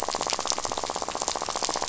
{"label": "biophony, rattle", "recorder": "SoundTrap 500"}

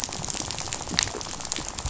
{"label": "biophony, rattle", "recorder": "SoundTrap 500"}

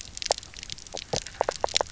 {"label": "biophony, knock croak", "recorder": "SoundTrap 300"}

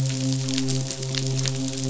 {"label": "biophony, midshipman", "recorder": "SoundTrap 500"}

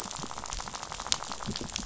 {"label": "biophony, rattle", "recorder": "SoundTrap 500"}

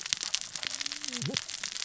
{"label": "biophony, cascading saw", "recorder": "SoundTrap 600 or HydroMoth"}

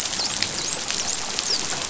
{"label": "biophony, dolphin", "recorder": "SoundTrap 500"}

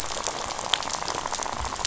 {"label": "biophony, rattle", "recorder": "SoundTrap 500"}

